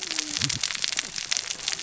{"label": "biophony, cascading saw", "recorder": "SoundTrap 600 or HydroMoth"}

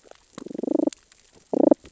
{"label": "biophony, damselfish", "recorder": "SoundTrap 600 or HydroMoth"}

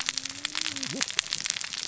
{"label": "biophony, cascading saw", "recorder": "SoundTrap 600 or HydroMoth"}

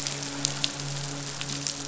{"label": "biophony, midshipman", "recorder": "SoundTrap 500"}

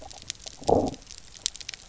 {"label": "biophony, low growl", "recorder": "SoundTrap 300"}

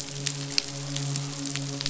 {"label": "biophony, midshipman", "recorder": "SoundTrap 500"}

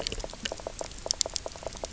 {"label": "biophony, knock croak", "recorder": "SoundTrap 300"}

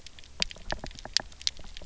{"label": "biophony, knock", "recorder": "SoundTrap 300"}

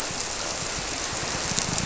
{"label": "biophony", "recorder": "SoundTrap 300"}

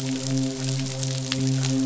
{"label": "biophony, midshipman", "recorder": "SoundTrap 500"}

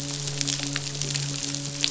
{"label": "biophony, midshipman", "recorder": "SoundTrap 500"}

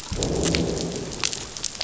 {"label": "biophony, growl", "recorder": "SoundTrap 500"}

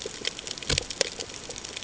{"label": "ambient", "recorder": "HydroMoth"}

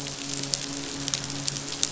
{"label": "biophony, midshipman", "recorder": "SoundTrap 500"}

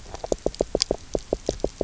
{"label": "biophony, knock croak", "recorder": "SoundTrap 300"}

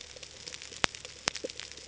{"label": "ambient", "recorder": "HydroMoth"}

